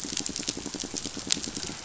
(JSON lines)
{"label": "biophony, pulse", "recorder": "SoundTrap 500"}